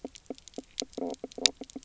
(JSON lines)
{"label": "biophony, knock croak", "recorder": "SoundTrap 300"}